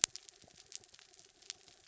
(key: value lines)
label: anthrophony, mechanical
recorder: SoundTrap 300